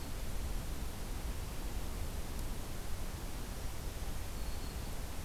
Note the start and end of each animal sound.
4.3s-4.9s: Black-throated Green Warbler (Setophaga virens)

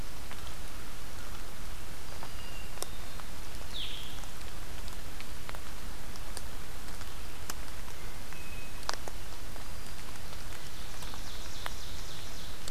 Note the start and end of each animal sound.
2.2s-3.3s: Hermit Thrush (Catharus guttatus)
3.5s-4.4s: Blue-headed Vireo (Vireo solitarius)
7.9s-8.9s: Hermit Thrush (Catharus guttatus)
10.3s-12.7s: Ovenbird (Seiurus aurocapilla)

